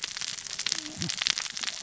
{"label": "biophony, cascading saw", "recorder": "SoundTrap 600 or HydroMoth"}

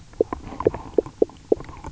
{"label": "biophony, knock croak", "recorder": "SoundTrap 300"}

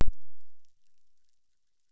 {"label": "biophony, chorus", "recorder": "SoundTrap 600"}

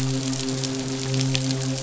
{"label": "biophony, midshipman", "recorder": "SoundTrap 500"}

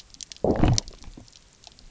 {"label": "biophony, low growl", "recorder": "SoundTrap 300"}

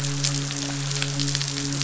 {"label": "biophony, midshipman", "recorder": "SoundTrap 500"}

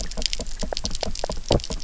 {"label": "biophony, knock croak", "recorder": "SoundTrap 300"}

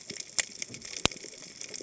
{"label": "biophony, cascading saw", "recorder": "HydroMoth"}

